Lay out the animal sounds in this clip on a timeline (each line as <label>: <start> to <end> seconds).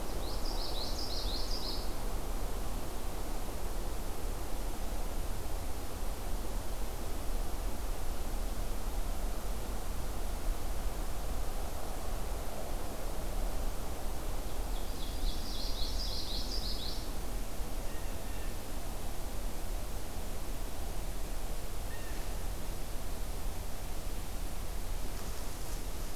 Common Yellowthroat (Geothlypis trichas): 0.1 to 2.0 seconds
Ovenbird (Seiurus aurocapilla): 14.5 to 16.3 seconds
Common Yellowthroat (Geothlypis trichas): 15.1 to 17.1 seconds
Blue Jay (Cyanocitta cristata): 17.6 to 18.8 seconds
Blue Jay (Cyanocitta cristata): 21.8 to 22.7 seconds